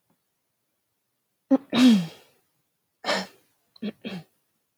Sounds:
Throat clearing